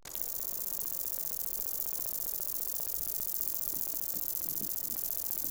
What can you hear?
Conocephalus fuscus, an orthopteran